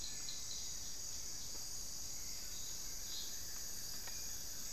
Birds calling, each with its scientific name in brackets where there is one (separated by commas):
Hauxwell's Thrush (Turdus hauxwelli), Buff-throated Woodcreeper (Xiphorhynchus guttatus)